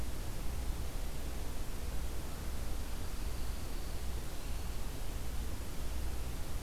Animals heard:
Pine Warbler (Setophaga pinus)

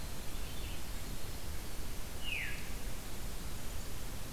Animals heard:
Veery (Catharus fuscescens), Winter Wren (Troglodytes hiemalis)

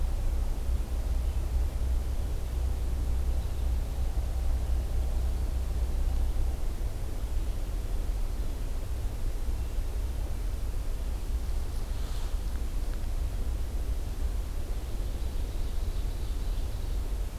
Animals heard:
Ovenbird (Seiurus aurocapilla), Hermit Thrush (Catharus guttatus)

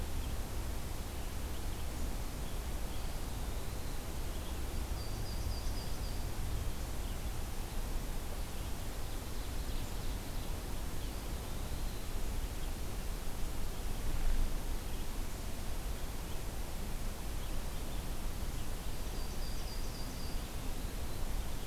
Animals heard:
Eastern Wood-Pewee (Contopus virens), Ovenbird (Seiurus aurocapilla), Yellow-rumped Warbler (Setophaga coronata)

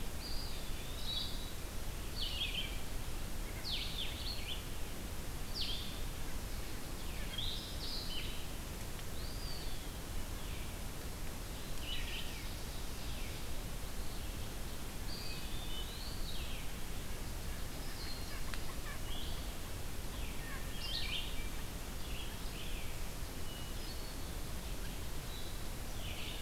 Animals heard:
Eastern Wood-Pewee (Contopus virens), Ovenbird (Seiurus aurocapilla), White-breasted Nuthatch (Sitta carolinensis), Red-eyed Vireo (Vireo olivaceus), Hermit Thrush (Catharus guttatus)

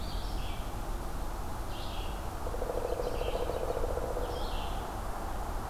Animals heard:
Red-eyed Vireo (Vireo olivaceus), Pileated Woodpecker (Dryocopus pileatus), American Robin (Turdus migratorius)

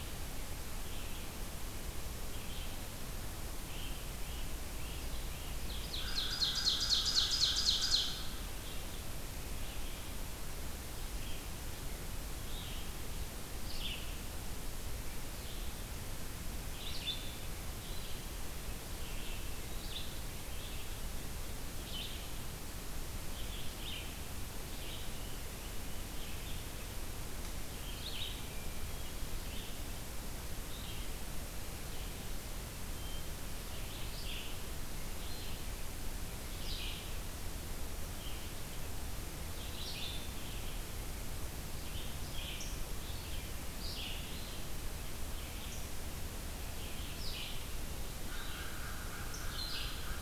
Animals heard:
Great Crested Flycatcher (Myiarchus crinitus), Ovenbird (Seiurus aurocapilla), Hermit Thrush (Catharus guttatus), American Crow (Corvus brachyrhynchos), Red-eyed Vireo (Vireo olivaceus)

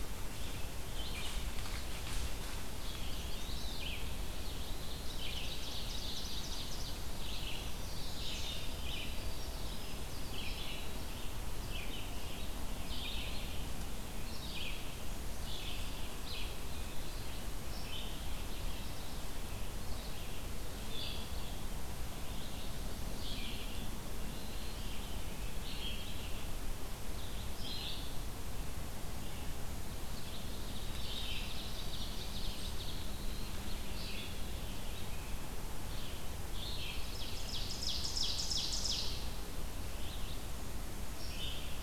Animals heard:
Winter Wren (Troglodytes hiemalis), Red-eyed Vireo (Vireo olivaceus), Eastern Wood-Pewee (Contopus virens), Chestnut-sided Warbler (Setophaga pensylvanica), Ovenbird (Seiurus aurocapilla)

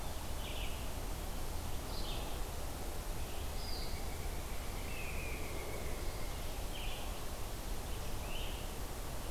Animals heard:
Red-eyed Vireo (Vireo olivaceus), Pileated Woodpecker (Dryocopus pileatus), Blue Jay (Cyanocitta cristata), Great Crested Flycatcher (Myiarchus crinitus)

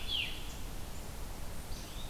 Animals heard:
Red-eyed Vireo (Vireo olivaceus), Veery (Catharus fuscescens)

